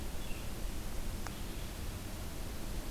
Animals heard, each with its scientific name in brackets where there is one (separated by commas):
Red-eyed Vireo (Vireo olivaceus)